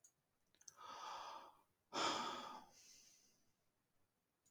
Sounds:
Sigh